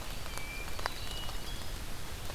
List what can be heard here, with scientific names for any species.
Catharus guttatus